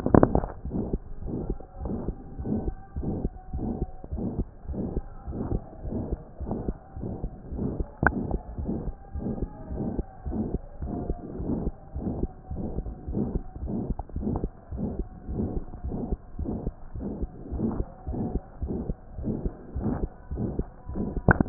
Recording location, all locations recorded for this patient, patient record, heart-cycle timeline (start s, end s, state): mitral valve (MV)
aortic valve (AV)+pulmonary valve (PV)+tricuspid valve (TV)+mitral valve (MV)
#Age: Child
#Sex: Male
#Height: 121.0 cm
#Weight: 23.0 kg
#Pregnancy status: False
#Murmur: Present
#Murmur locations: aortic valve (AV)+mitral valve (MV)+pulmonary valve (PV)+tricuspid valve (TV)
#Most audible location: tricuspid valve (TV)
#Systolic murmur timing: Holosystolic
#Systolic murmur shape: Diamond
#Systolic murmur grading: III/VI or higher
#Systolic murmur pitch: High
#Systolic murmur quality: Harsh
#Diastolic murmur timing: nan
#Diastolic murmur shape: nan
#Diastolic murmur grading: nan
#Diastolic murmur pitch: nan
#Diastolic murmur quality: nan
#Outcome: Abnormal
#Campaign: 2015 screening campaign
0.00	1.14	unannotated
1.14	1.20	diastole
1.20	1.32	S1
1.32	1.44	systole
1.44	1.56	S2
1.56	1.80	diastole
1.80	1.92	S1
1.92	2.06	systole
2.06	2.16	S2
2.16	2.36	diastole
2.36	2.48	S1
2.48	2.64	systole
2.64	2.76	S2
2.76	2.94	diastole
2.94	3.06	S1
3.06	3.22	systole
3.22	3.29	S2
3.29	3.52	diastole
3.52	3.64	S1
3.64	3.80	systole
3.80	3.92	S2
3.92	4.11	diastole
4.11	4.22	S1
4.22	4.38	systole
4.38	4.48	S2
4.48	4.67	diastole
4.67	4.77	S1
4.77	4.94	systole
4.94	5.06	S2
5.06	5.25	diastole
5.25	5.34	S1
5.34	5.52	systole
5.52	5.62	S2
5.62	5.83	diastole
5.83	5.94	S1
5.94	6.10	systole
6.10	6.22	S2
6.22	6.38	diastole
6.38	6.50	S1
6.50	6.66	systole
6.66	6.76	S2
6.76	6.96	diastole
6.96	7.07	S1
7.07	7.22	systole
7.22	7.32	S2
7.32	7.50	diastole
7.50	7.60	S1
7.60	7.78	systole
7.78	7.88	S2
7.88	8.04	diastole
8.04	8.14	S1
8.14	8.32	systole
8.32	8.44	S2
8.44	8.58	diastole
8.58	8.68	S1
8.68	8.86	systole
8.86	8.96	S2
8.96	9.14	diastole
9.14	9.23	S1
9.23	9.40	systole
9.40	9.50	S2
9.50	9.71	diastole
9.71	9.81	S1
9.81	9.95	systole
9.95	10.03	S2
10.03	10.25	diastole
10.25	10.35	S1
10.35	10.52	systole
10.52	10.62	S2
10.62	10.81	diastole
10.81	10.92	S1
10.92	11.06	systole
11.06	11.15	S2
11.15	11.36	diastole
11.36	11.52	S1
11.52	11.60	systole
11.60	11.72	S2
11.72	11.94	diastole
11.94	12.04	S1
12.04	12.18	systole
12.18	12.30	S2
12.30	12.50	diastole
12.50	12.60	S1
12.60	12.76	systole
12.76	12.86	S2
12.86	13.07	diastole
13.07	13.18	S1
13.18	13.34	systole
13.34	13.41	S2
13.41	13.61	diastole
13.61	13.71	S1
13.71	13.88	systole
13.88	14.00	S2
14.00	14.15	diastole
14.15	14.24	S1
14.24	14.42	systole
14.42	14.52	S2
14.52	14.71	diastole
14.71	14.82	S1
14.82	14.98	systole
14.98	15.08	S2
15.08	15.27	diastole
15.27	15.37	S1
15.37	15.54	systole
15.54	15.64	S2
15.64	15.83	diastole
15.83	15.94	S1
15.94	16.10	systole
16.10	16.20	S2
16.20	16.38	diastole
16.38	16.48	S1
16.48	16.65	systole
16.65	16.73	S2
16.73	16.95	diastole
16.95	17.04	S1
17.04	17.20	systole
17.20	17.30	S2
17.30	17.51	diastole
17.51	17.62	S1
17.62	17.78	systole
17.78	17.90	S2
17.90	18.05	diastole
18.05	18.16	S1
18.16	18.32	systole
18.32	18.40	S2
18.40	18.60	diastole
18.60	18.71	S1
18.71	18.88	systole
18.88	18.96	S2
18.96	19.16	diastole
19.16	19.26	S1
19.26	19.42	systole
19.42	19.53	S2
19.53	19.74	diastole
19.74	19.82	S1
19.82	20.00	systole
20.00	20.09	S2
20.09	20.30	diastole
20.30	20.41	S1
20.41	20.58	systole
20.58	20.70	S2
20.70	20.89	diastole
20.89	21.00	S1
21.00	21.14	systole
21.14	21.23	S2
21.23	21.49	unannotated